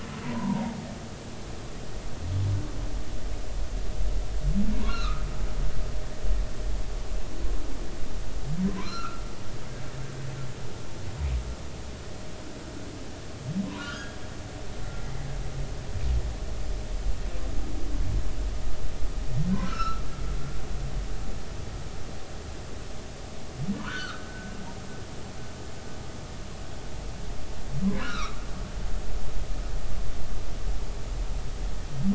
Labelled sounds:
0.2	0.8	humpback whale, 0.86 to 1.1 kHz
4.7	5.3	humpback whale, 0.93 to 4.3 kHz
8.7	9.2	humpback whale, 0.93 to 1.5 kHz
13.6	14.2	humpback whale, 0.93 to 3.4 kHz
19.5	20.0	humpback whale, 1.2 to 1.6 kHz
23.8	24.3	humpback whale, 0.93 to 3.2 kHz
28.0	29.3	humpback whale, 1.1 to 4.2 kHz

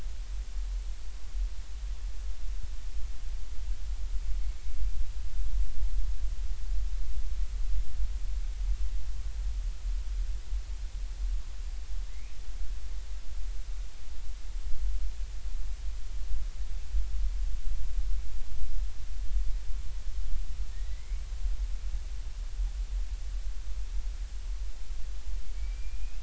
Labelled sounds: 20.7	21.3	killer whale, Bigg's (transient), 1.8 to 2.4 kHz
25.6	26.2	killer whale, Bigg's (transient), 2.2 to 2.8 kHz

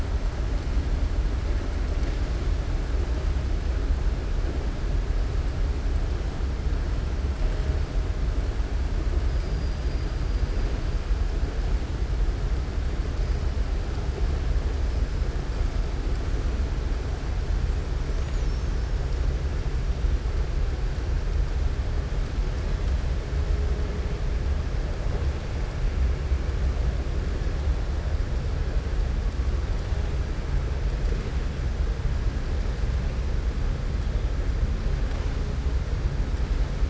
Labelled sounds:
18.1	18.9	killer whale, southern resident, 4.6 to 7.1 kHz

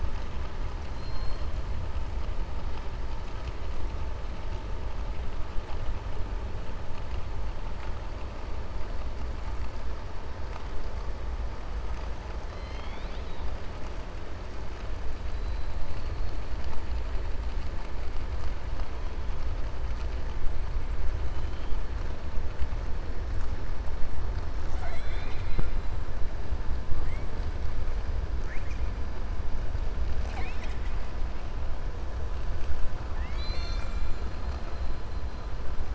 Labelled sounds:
0.7	1.5	killer whale, 3.3 to 5.8 kHz
12.4	13.5	killer whale, 1.9 to 6.0 kHz
30.1	31.0	killer whale, 0.77 to 7.9 kHz
33.1	34.2	killer whale, 1.1 to 8.0 kHz

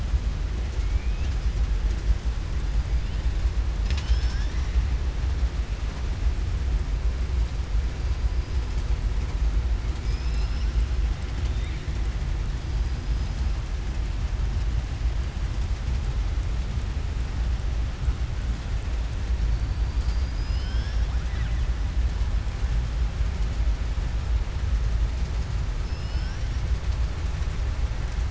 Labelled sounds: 25.8	26.6	killer whale, southern resident, 1.5 to 5.9 kHz

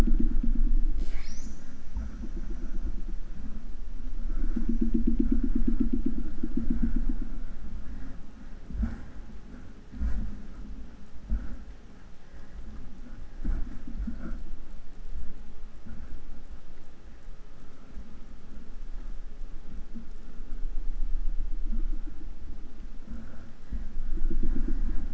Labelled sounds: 0.9	2.2	killer whale, southern resident, J pod, call S08i, 0.21 to 8.0 kHz

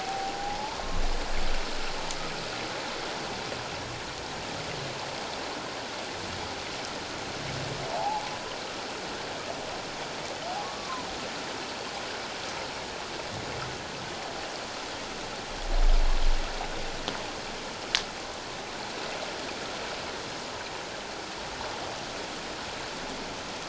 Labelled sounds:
0.0	1.0	humpback whale, 0.78 to 1.2 kHz
7.9	8.2	humpback whale, 0.78 to 0.97 kHz
10.6	11.1	humpback whale, 0.94 to 1.2 kHz

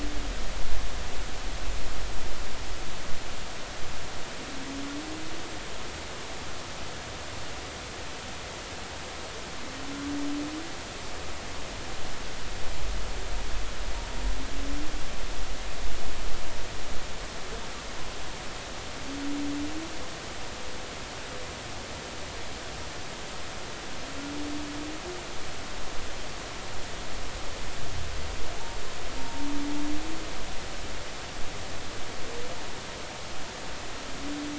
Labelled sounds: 29.2	29.5	humpback whale, 0.86 to 0.96 kHz

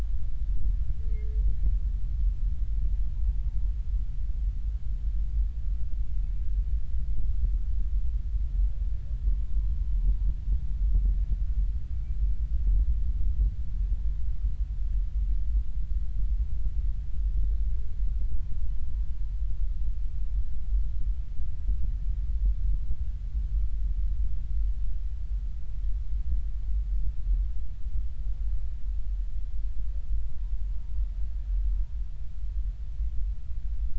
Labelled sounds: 11.9	12.2	humpback whale, 2.2 to 2.4 kHz

